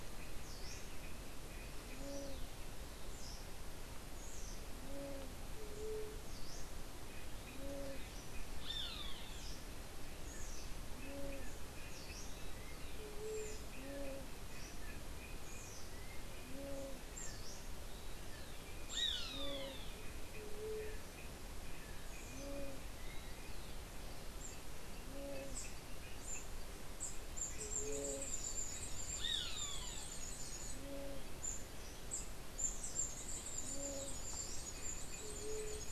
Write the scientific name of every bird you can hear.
unidentified bird, Leptotila verreauxi, Rupornis magnirostris, Stilpnia vitriolina